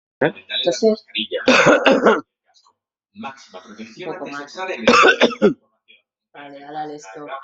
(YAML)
expert_labels:
- quality: ok
  cough_type: unknown
  dyspnea: false
  wheezing: false
  stridor: false
  choking: false
  congestion: false
  nothing: true
  diagnosis: healthy cough
  severity: pseudocough/healthy cough
age: 43
gender: male
respiratory_condition: true
fever_muscle_pain: false
status: symptomatic